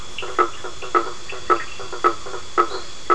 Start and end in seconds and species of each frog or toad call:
0.0	3.1	Boana faber
0.0	3.1	Sphaenorhynchus surdus
0.4	3.1	Elachistocleis bicolor
2.7	2.8	Boana leptolineata

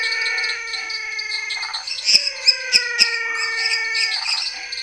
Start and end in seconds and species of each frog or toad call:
0.0	4.7	Leptodactylus labyrinthicus
0.0	4.8	Boana raniceps
0.0	4.8	Dendropsophus minutus
0.0	4.8	Dendropsophus nanus
0.0	4.8	Physalaemus albonotatus
1.5	1.9	Phyllomedusa sauvagii
3.2	3.6	Phyllomedusa sauvagii
4.1	4.4	Phyllomedusa sauvagii

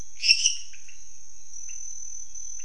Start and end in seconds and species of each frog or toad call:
0.0	2.6	Leptodactylus podicipinus
0.1	0.8	Dendropsophus minutus

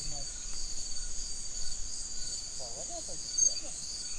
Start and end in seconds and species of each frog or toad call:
none

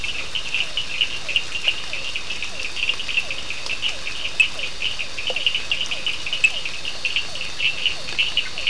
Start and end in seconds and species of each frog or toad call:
0.0	8.6	Elachistocleis bicolor
0.0	8.6	Sphaenorhynchus surdus
0.2	8.6	Physalaemus cuvieri

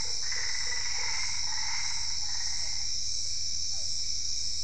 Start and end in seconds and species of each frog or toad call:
0.0	1.2	Boana lundii
0.0	3.0	Boana albopunctata
3.7	3.9	Physalaemus cuvieri

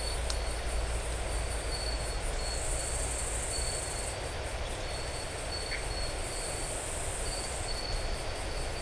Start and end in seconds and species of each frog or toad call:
5.7	5.8	Dendropsophus elegans

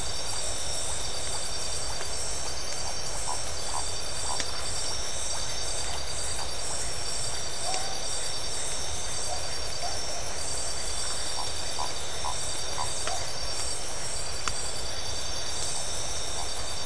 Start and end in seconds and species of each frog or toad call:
11.0	11.3	Phyllomedusa distincta

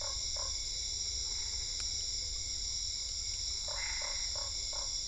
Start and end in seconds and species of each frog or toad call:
0.0	0.7	Boana lundii
3.6	4.3	Boana albopunctata
3.6	5.0	Boana lundii

